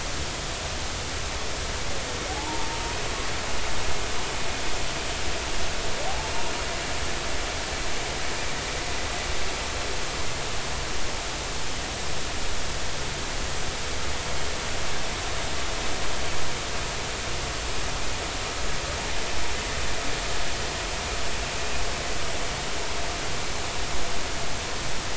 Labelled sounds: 2.3	2.7	humpback whale, 0.80 to 1.0 kHz
6.1	6.3	humpback whale, 0.80 to 0.90 kHz

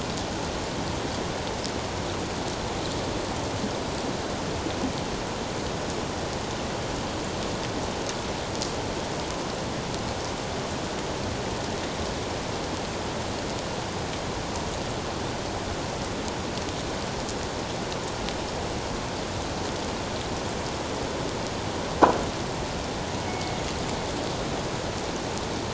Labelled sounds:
23.3	23.6	killer whale, northern resident, G clan, call N24ii, 2.2 to 2.3 kHz

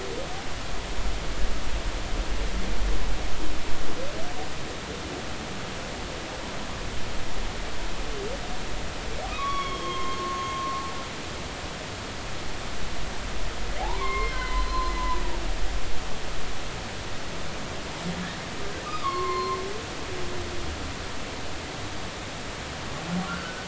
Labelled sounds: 9.3	10.8	humpback whale, 0.99 to 5.6 kHz
13.8	15.2	humpback whale, 0.80 to 4.2 kHz
18.9	19.6	humpback whale, 0.99 to 4.3 kHz
23.3	23.6	humpback whale, 1.3 to 1.6 kHz

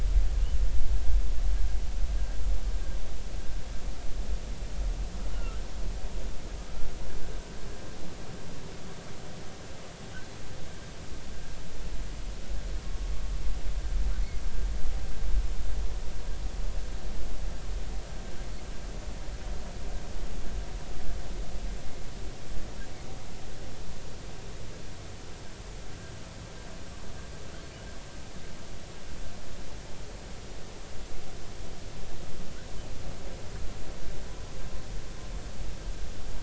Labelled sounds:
5.3	5.6	humpback whale, 1.2 to 1.5 kHz

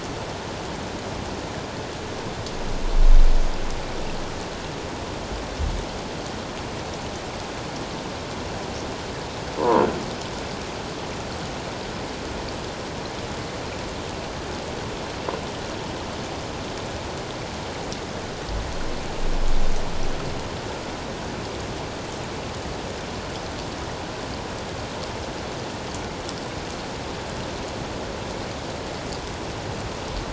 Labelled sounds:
9.6	9.8	croaking sound likely from a nearby submerged object, 0.81 to 1.1 kHz

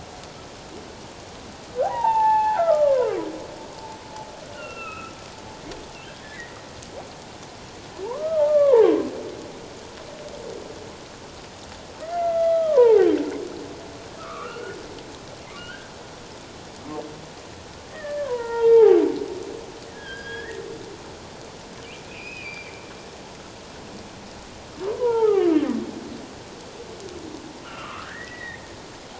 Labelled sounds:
1.8	3.2	humpback whale, 0.78 to 2.9 kHz
4.5	5.1	humpback whale, 1.2 to 2.9 kHz
6.2	6.6	humpback whale, 1.6 to 2.1 kHz
8.0	8.9	humpback whale, 0.78 to 2.4 kHz
12.0	13.1	humpback whale, 0.78 to 3.4 kHz
14.2	14.8	humpback whale, 1.0 to 2.9 kHz
15.6	15.9	humpback whale, 1.3 to 3.2 kHz
17.9	19.0	humpback whale, 0.78 to 2.3 kHz
19.9	20.6	humpback whale, 1.5 to 3.4 kHz
22.0	22.8	humpback whale, 2.2 to 5.2 kHz
24.9	25.8	humpback whale, 0.81 to 1.5 kHz
27.6	28.6	humpback whale, 0.97 to 2.2 kHz

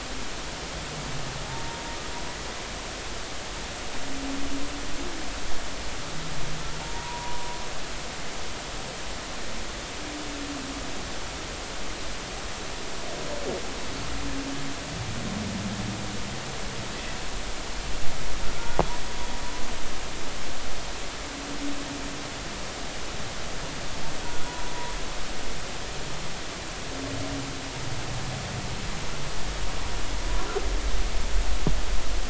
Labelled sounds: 2.5	2.8	humpback whale, 0.83 to 0.96 kHz
6.8	7.6	humpback whale, 0.90 to 1.1 kHz
24.2	24.7	humpback whale, 0.93 to 1.5 kHz

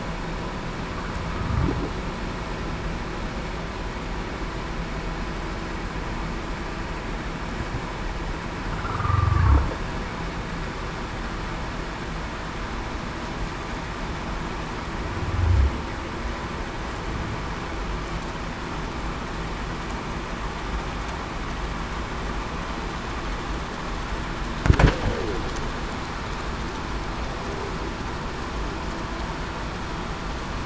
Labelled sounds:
9.0	9.5	humpback whale, 1.1 to 1.3 kHz
25.1	25.4	humpback whale, 0.30 to 0.52 kHz

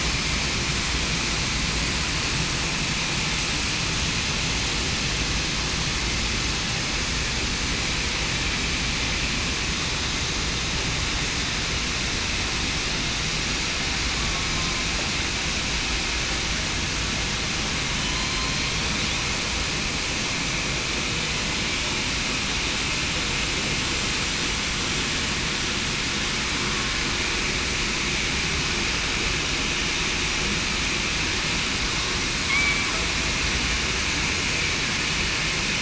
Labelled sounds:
14.1	14.5	killer whale, southern resident, 1.1 to 1.2 kHz
32.5	32.9	killer whale, southern resident, 2.1 to 2.4 kHz

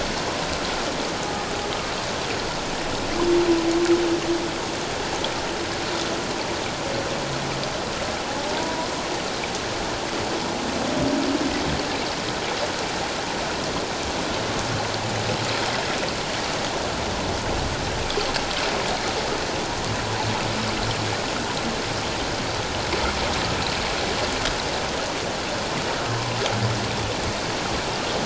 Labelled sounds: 8.4	8.9	humpback whale, 0.81 to 1.1 kHz

